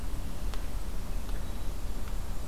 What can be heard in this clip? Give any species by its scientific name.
forest ambience